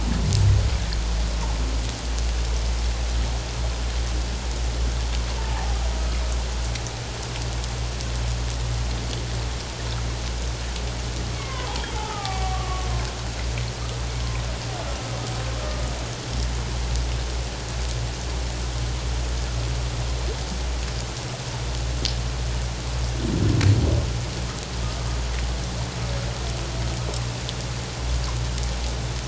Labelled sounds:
5.5	5.8	humpback whale, 0.78 to 0.91 kHz
11.3	12.9	humpback whale, 0.78 to 3.3 kHz
14.8	15.1	humpback whale, 1.3 to 1.5 kHz

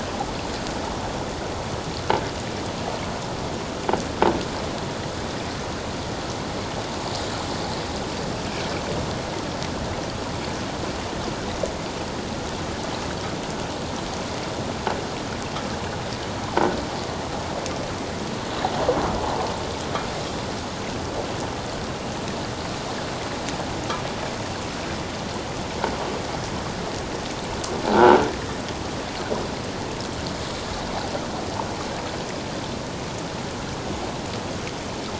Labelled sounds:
27.8	28.2	croaking sound likely from a nearby submerged object, 0.78 to 1.6 kHz

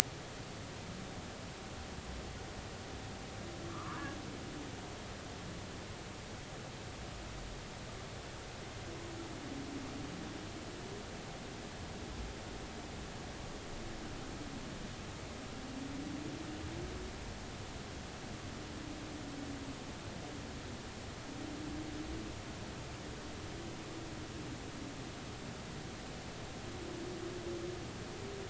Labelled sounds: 3.7	4.1	humpback whale, 0.93 to 1.6 kHz

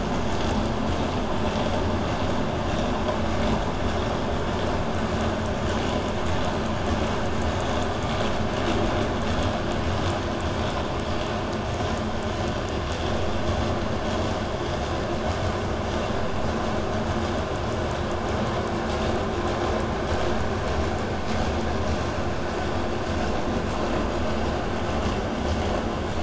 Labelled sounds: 7.6	10.7	killer whale, southern resident, 1.9 to 8.0 kHz

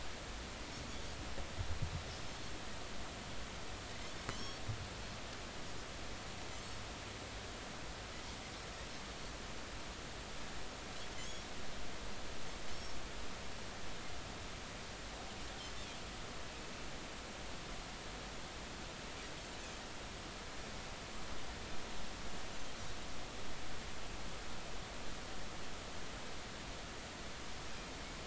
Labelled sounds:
4.3	4.6	Pacific white-sided dolphin, 3.2 to 5.6 kHz

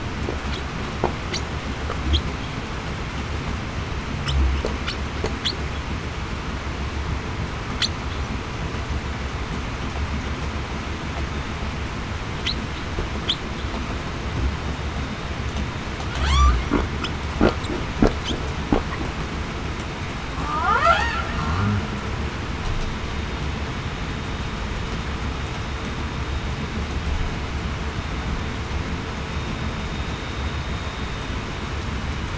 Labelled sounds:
16.2	16.6	humpback whale, 0.82 to 1.2 kHz
20.4	20.8	humpback whale, 0.87 to 1.5 kHz

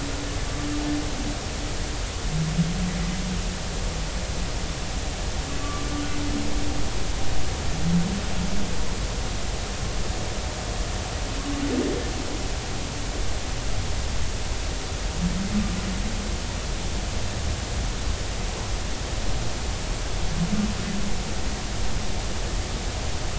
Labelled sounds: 5.6	5.9	humpback whale, 1.1 to 1.2 kHz

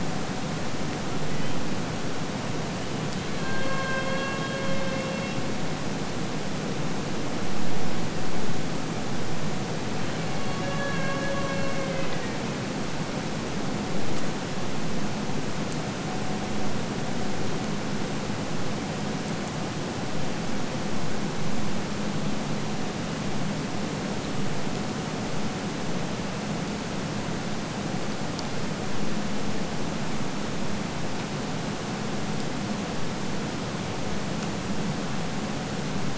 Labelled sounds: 1.0	1.6	killer whale, Bigg's (transient), AT1 transient, 1.2 to 3.4 kHz
3.1	5.6	killer whale, Bigg's (transient), AT1 transient, 0.88 to 5.7 kHz
10.0	12.4	killer whale, Bigg's (transient), AT1 transient, 0.83 to 4.5 kHz

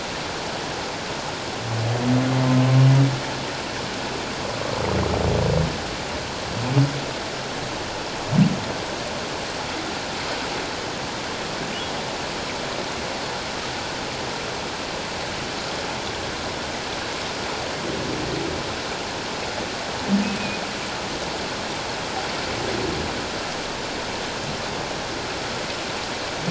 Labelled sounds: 20.2	20.6	humpback whale, 2.4 to 2.6 kHz

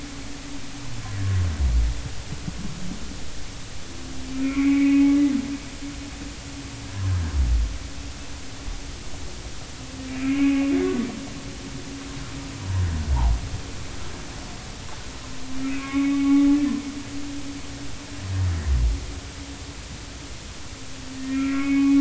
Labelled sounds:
4.4	5.2	humpback whale, 1.9 to 2.6 kHz
10.1	10.7	humpback whale, 2.1 to 2.8 kHz
15.6	16.5	humpback whale, 0.80 to 2.6 kHz
21.3	21.9	humpback whale, 1.2 to 2.6 kHz

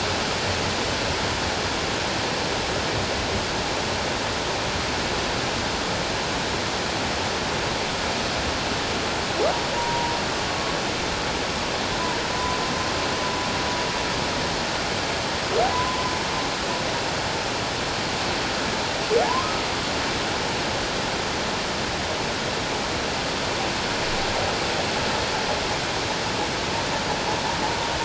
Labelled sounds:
9.7	10.2	humpback whale, 0.88 to 1.0 kHz
12.3	12.6	humpback whale, 0.97 to 1.0 kHz
15.7	16.0	humpback whale, 0.94 to 1.1 kHz
19.2	19.5	humpback whale, 0.78 to 1.1 kHz

